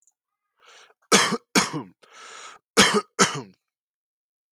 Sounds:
Cough